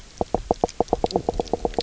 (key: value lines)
label: biophony, knock croak
recorder: SoundTrap 300